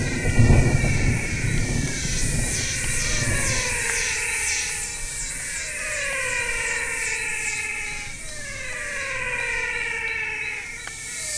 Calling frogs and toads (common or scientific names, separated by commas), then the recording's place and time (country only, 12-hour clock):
Adenomera diptyx, menwig frog
Brazil, 6:00pm